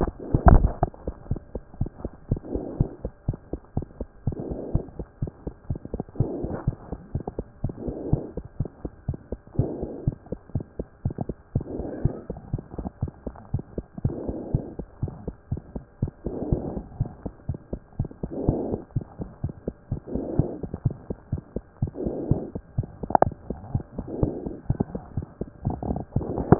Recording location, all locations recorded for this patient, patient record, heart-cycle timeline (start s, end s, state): pulmonary valve (PV)
aortic valve (AV)+pulmonary valve (PV)+tricuspid valve (TV)+mitral valve (MV)
#Age: Child
#Sex: Male
#Height: 94.0 cm
#Weight: 10.2 kg
#Pregnancy status: False
#Murmur: Absent
#Murmur locations: nan
#Most audible location: nan
#Systolic murmur timing: nan
#Systolic murmur shape: nan
#Systolic murmur grading: nan
#Systolic murmur pitch: nan
#Systolic murmur quality: nan
#Diastolic murmur timing: nan
#Diastolic murmur shape: nan
#Diastolic murmur grading: nan
#Diastolic murmur pitch: nan
#Diastolic murmur quality: nan
#Outcome: Abnormal
#Campaign: 2014 screening campaign
0.00	1.16	unannotated
1.16	1.28	diastole
1.28	1.40	S1
1.40	1.54	systole
1.54	1.60	S2
1.60	1.80	diastole
1.80	1.90	S1
1.90	2.02	systole
2.02	2.12	S2
2.12	2.30	diastole
2.30	2.40	S1
2.40	2.52	systole
2.52	2.62	S2
2.62	2.78	diastole
2.78	2.90	S1
2.90	3.02	systole
3.02	3.12	S2
3.12	3.28	diastole
3.28	3.38	S1
3.38	3.50	systole
3.50	3.60	S2
3.60	3.76	diastole
3.76	3.86	S1
3.86	3.98	systole
3.98	4.08	S2
4.08	4.26	diastole
4.26	4.38	S1
4.38	4.48	systole
4.48	4.58	S2
4.58	4.72	diastole
4.72	4.84	S1
4.84	4.96	systole
4.96	5.06	S2
5.06	5.22	diastole
5.22	5.32	S1
5.32	5.44	systole
5.44	5.54	S2
5.54	5.68	diastole
5.68	5.80	S1
5.80	5.92	systole
5.92	6.02	S2
6.02	6.20	diastole
6.20	6.32	S1
6.32	6.42	systole
6.42	6.52	S2
6.52	6.66	diastole
6.66	6.76	S1
6.76	6.90	systole
6.90	6.98	S2
6.98	7.14	diastole
7.14	7.24	S1
7.24	7.36	systole
7.36	7.46	S2
7.46	7.64	diastole
7.64	7.74	S1
7.74	7.84	systole
7.84	7.94	S2
7.94	8.10	diastole
8.10	8.22	S1
8.22	8.34	systole
8.34	8.44	S2
8.44	8.58	diastole
8.58	8.68	S1
8.68	8.82	systole
8.82	8.92	S2
8.92	9.08	diastole
9.08	9.18	S1
9.18	9.30	systole
9.30	9.40	S2
9.40	9.58	diastole
9.58	9.70	S1
9.70	9.80	systole
9.80	9.90	S2
9.90	10.06	diastole
10.06	10.16	S1
10.16	10.30	systole
10.30	10.38	S2
10.38	10.54	diastole
10.54	10.64	S1
10.64	10.78	systole
10.78	10.86	S2
10.86	11.04	diastole
11.04	11.14	S1
11.14	11.26	systole
11.26	11.36	S2
11.36	11.54	diastole
11.54	11.64	S1
11.64	11.76	systole
11.76	11.86	S2
11.86	12.02	diastole
12.02	12.14	S1
12.14	12.28	systole
12.28	12.38	S2
12.38	12.52	diastole
12.52	12.62	S1
12.62	12.78	systole
12.78	12.88	S2
12.88	13.02	diastole
13.02	13.12	S1
13.12	13.26	systole
13.26	13.34	S2
13.34	13.52	diastole
13.52	13.62	S1
13.62	13.76	systole
13.76	13.86	S2
13.86	14.04	diastole
14.04	14.16	S1
14.16	14.26	systole
14.26	14.36	S2
14.36	14.52	diastole
14.52	14.64	S1
14.64	14.78	systole
14.78	14.86	S2
14.86	15.02	diastole
15.02	15.12	S1
15.12	15.24	systole
15.24	15.34	S2
15.34	15.52	diastole
15.52	15.62	S1
15.62	15.74	systole
15.74	15.84	S2
15.84	16.02	diastole
16.02	16.12	S1
16.12	16.24	systole
16.24	16.34	S2
16.34	16.50	diastole
16.50	16.62	S1
16.62	16.74	systole
16.74	16.82	S2
16.82	16.98	diastole
16.98	17.10	S1
17.10	17.24	systole
17.24	17.32	S2
17.32	17.48	diastole
17.48	17.58	S1
17.58	17.72	systole
17.72	17.80	S2
17.80	17.98	diastole
17.98	18.08	S1
18.08	18.22	systole
18.22	18.30	S2
18.30	18.41	diastole
18.41	26.59	unannotated